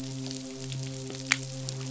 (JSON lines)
{"label": "biophony, midshipman", "recorder": "SoundTrap 500"}